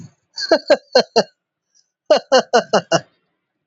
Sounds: Laughter